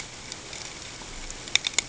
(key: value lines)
label: ambient
recorder: HydroMoth